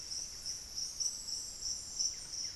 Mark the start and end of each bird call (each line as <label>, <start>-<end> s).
Buff-breasted Wren (Cantorchilus leucotis), 0.0-2.6 s